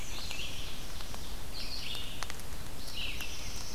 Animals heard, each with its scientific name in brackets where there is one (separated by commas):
Black-throated Blue Warbler (Setophaga caerulescens), Ovenbird (Seiurus aurocapilla), Red-eyed Vireo (Vireo olivaceus)